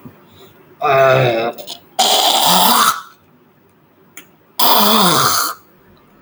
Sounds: Throat clearing